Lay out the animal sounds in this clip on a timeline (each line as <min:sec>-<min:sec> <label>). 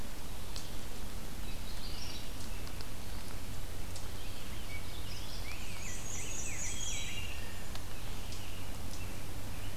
0:01.4-0:02.3 Magnolia Warbler (Setophaga magnolia)
0:04.6-0:06.7 Rose-breasted Grosbeak (Pheucticus ludovicianus)
0:05.4-0:07.3 Black-and-white Warbler (Mniotilta varia)
0:06.3-0:07.4 Wood Thrush (Hylocichla mustelina)